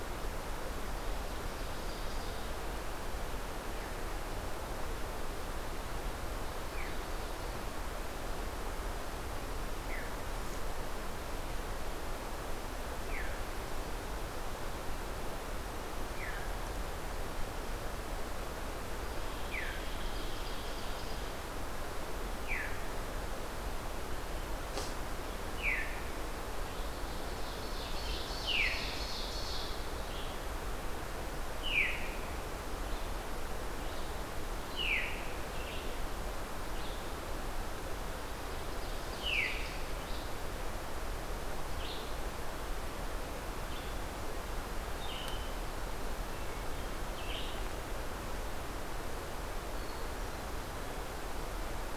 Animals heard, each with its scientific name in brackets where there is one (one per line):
Red-eyed Vireo (Vireo olivaceus)
Veery (Catharus fuscescens)
Ovenbird (Seiurus aurocapilla)
Hermit Thrush (Catharus guttatus)